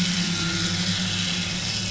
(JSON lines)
{"label": "anthrophony, boat engine", "recorder": "SoundTrap 500"}